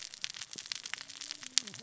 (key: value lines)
label: biophony, cascading saw
recorder: SoundTrap 600 or HydroMoth